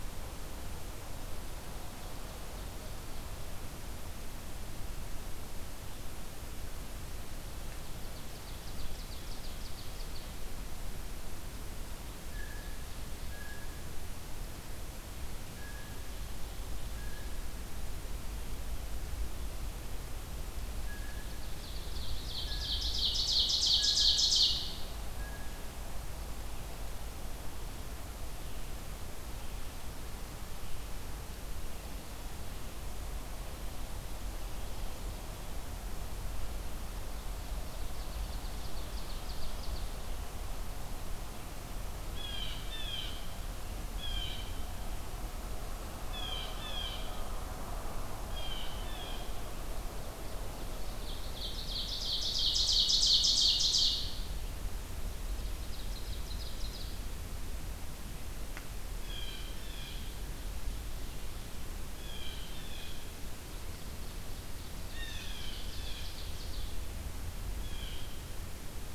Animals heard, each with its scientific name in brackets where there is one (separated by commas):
Ovenbird (Seiurus aurocapilla), Blue Jay (Cyanocitta cristata)